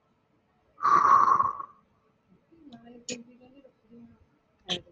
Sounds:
Sigh